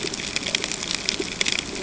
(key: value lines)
label: ambient
recorder: HydroMoth